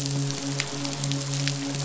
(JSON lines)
{"label": "biophony, midshipman", "recorder": "SoundTrap 500"}